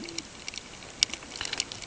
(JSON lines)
{"label": "ambient", "recorder": "HydroMoth"}